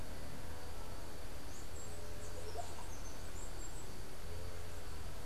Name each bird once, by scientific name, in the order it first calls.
unidentified bird, Psarocolius angustifrons